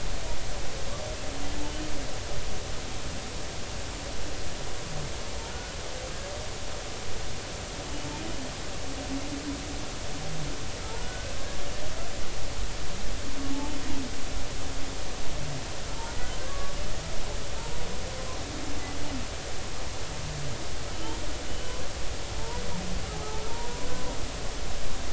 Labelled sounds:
10.9	11.3	humpback whale, 1.4 to 1.6 kHz
16.5	16.7	humpback whale, 1.1 to 1.2 kHz
20.9	21.2	humpback whale, 2.9 to 3.3 kHz
23.5	24.2	humpback whale, 0.90 to 1.0 kHz

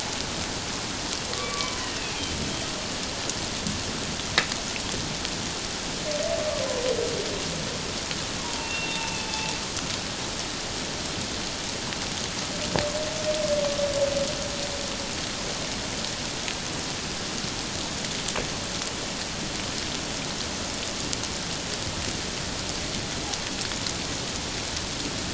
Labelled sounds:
1.3	2.3	humpback whale, 0.97 to 2.7 kHz
8.4	9.5	humpback whale, 0.81 to 3.7 kHz

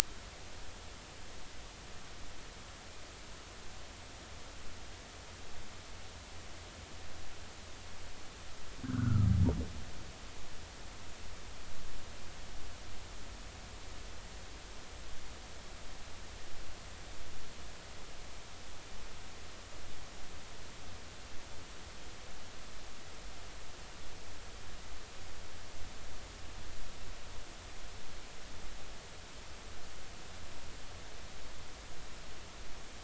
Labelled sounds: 8.8	9.3	humpback whale, 1.2 to 1.7 kHz

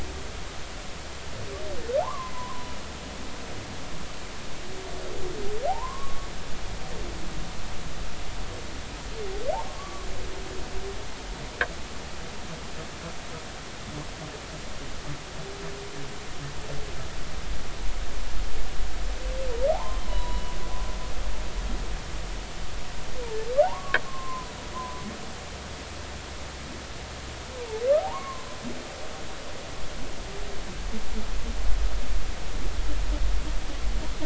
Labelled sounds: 2.0	2.8	humpback whale, 0.80 to 1.2 kHz
5.7	6.3	humpback whale, 0.80 to 1.2 kHz
9.5	10.1	humpback whale, 0.80 to 1.2 kHz
19.7	20.4	humpback whale, 0.80 to 4.0 kHz
23.6	25.0	humpback whale, 0.80 to 1.2 kHz
28.0	28.5	humpback whale, 0.80 to 1.2 kHz

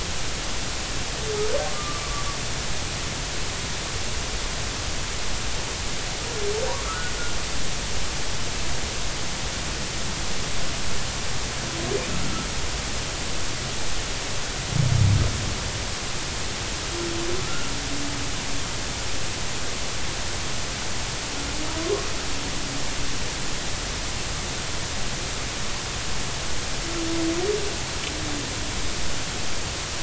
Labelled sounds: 1.7	2.0	humpback whale, 1.1 to 1.2 kHz
6.8	7.1	humpback whale, 1.1 to 1.5 kHz
12.2	12.5	humpback whale, 1.2 to 1.4 kHz
17.4	17.7	humpback whale, 1.2 to 1.5 kHz
21.8	22.1	humpback whale, 0.96 to 1.1 kHz

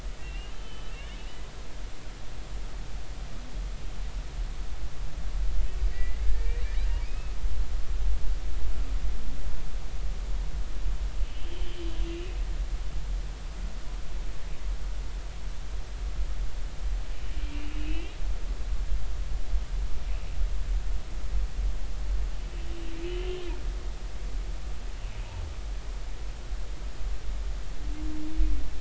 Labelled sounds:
0.2	0.9	humpback whale, 2.6 to 3.1 kHz
5.9	6.6	humpback whale, 1.7 to 2.4 kHz
7.0	7.4	humpback whale, 1.2 to 2.7 kHz
11.2	12.4	humpback whale, 2.4 to 3.3 kHz
17.4	18.1	humpback whale, 2.3 to 3.3 kHz

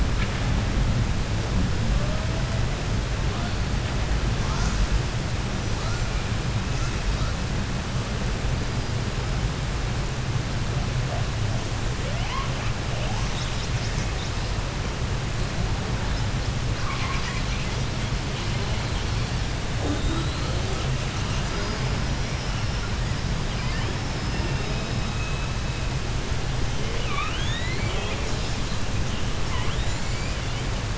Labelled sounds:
1.6	2.9	killer whale, 0.40 to 5.4 kHz
3.2	3.6	killer whale, 0.32 to 4.6 kHz
4.3	5.0	killer whale, 0.28 to 7.9 kHz
5.5	6.2	killer whale, 0.53 to 7.8 kHz
6.5	7.4	killer whale, 0.67 to 7.8 kHz
8.5	9.9	killer whale, 4.3 to 5.5 kHz
11.9	14.6	killer whale, 0.10 to 7.9 kHz
16.7	17.9	killer whale, 0.10 to 7.7 kHz
18.2	19.5	killer whale, 1.7 to 7.2 kHz
19.8	26.1	killer whale, 0.20 to 8.0 kHz
26.7	28.3	killer whale, southern resident, 0.10 to 7.9 kHz
29.4	30.9	killer whale, southern resident, 0.10 to 7.4 kHz

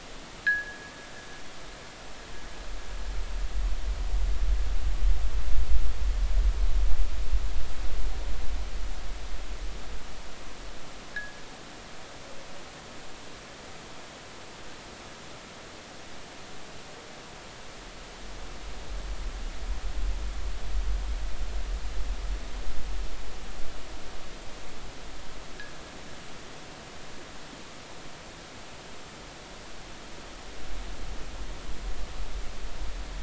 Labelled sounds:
0.4	0.8	fishing gear, 1.4 to 1.8 kHz
11.1	11.4	fishing gear, 1.5 to 1.9 kHz

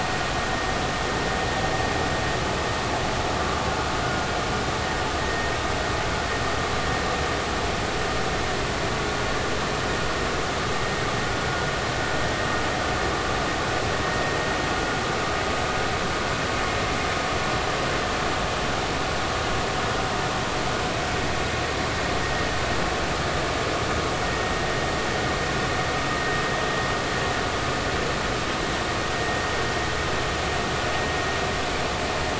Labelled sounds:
5.2	5.5	vessel noise, 1.8 to 2.0 kHz

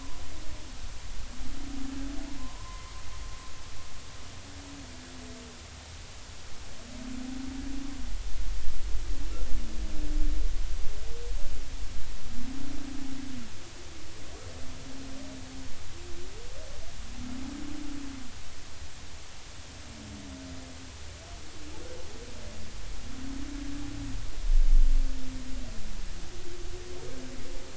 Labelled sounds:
2.4	2.9	humpback whale, 0.93 to 1.1 kHz

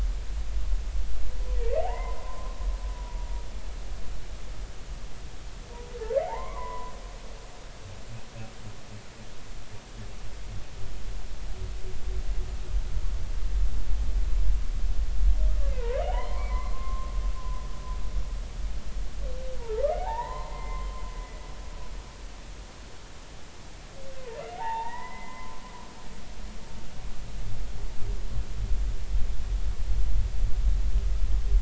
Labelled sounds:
1.6	2.6	humpback whale, 0.80 to 2.1 kHz
2.9	3.3	humpback whale, 0.93 to 0.99 kHz
6.2	6.9	humpback whale, 0.80 to 2.3 kHz
15.7	17.6	humpback whale, 0.80 to 3.2 kHz
19.6	20.9	humpback whale, 0.80 to 4.2 kHz
21.2	21.4	humpback whale, 1.95 to 2.05 kHz
24.2	25.9	humpback whale, 0.80 to 3.7 kHz

